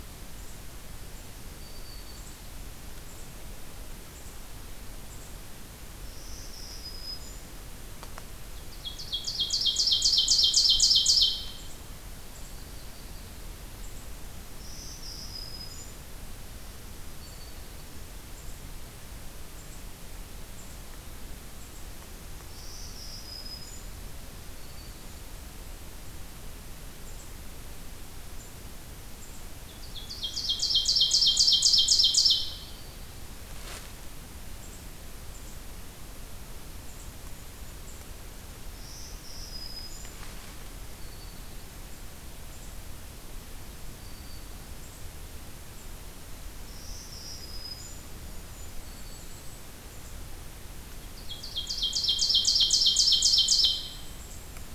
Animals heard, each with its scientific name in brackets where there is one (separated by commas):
Yellow-rumped Warbler (Setophaga coronata), Ovenbird (Seiurus aurocapilla), Golden-crowned Kinglet (Regulus satrapa), Black-throated Green Warbler (Setophaga virens)